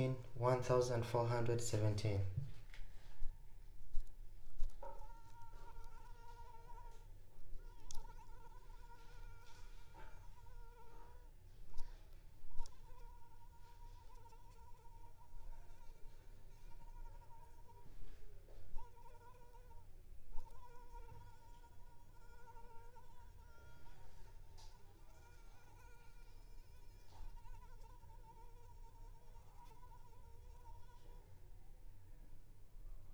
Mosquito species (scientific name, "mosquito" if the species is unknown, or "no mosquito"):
Anopheles arabiensis